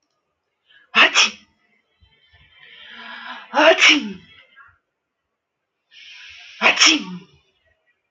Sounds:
Sneeze